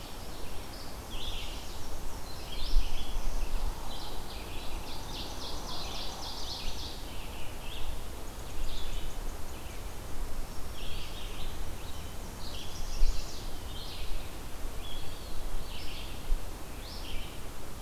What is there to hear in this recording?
Red-eyed Vireo, Black-and-white Warbler, Black-throated Blue Warbler, Ovenbird, Golden-crowned Kinglet, Chestnut-sided Warbler, Eastern Wood-Pewee